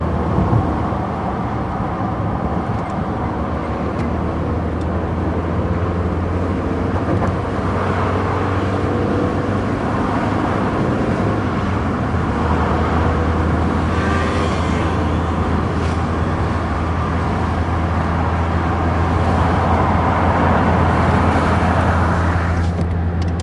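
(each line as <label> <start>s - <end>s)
Cars driving by on the road. 0.1s - 23.4s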